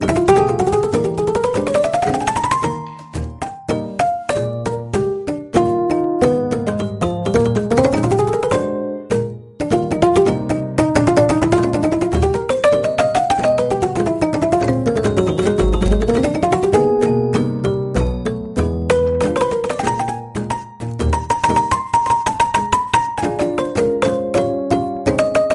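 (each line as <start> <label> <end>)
0.0 A gentle piano plays rhythmically. 25.5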